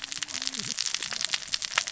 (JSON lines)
{"label": "biophony, cascading saw", "recorder": "SoundTrap 600 or HydroMoth"}